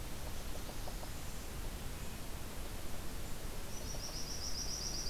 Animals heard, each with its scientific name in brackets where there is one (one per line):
Blackburnian Warbler (Setophaga fusca)